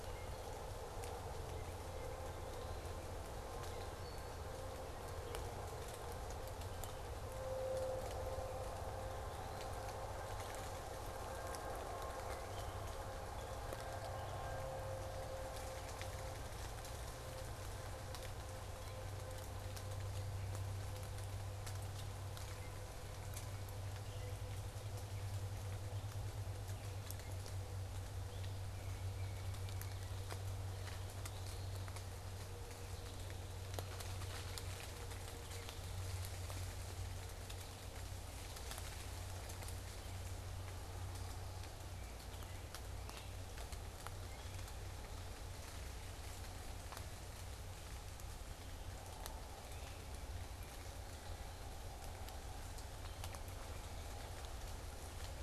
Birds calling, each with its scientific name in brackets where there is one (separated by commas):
unidentified bird, Tufted Titmouse (Baeolophus bicolor), Eastern Wood-Pewee (Contopus virens), American Goldfinch (Spinus tristis)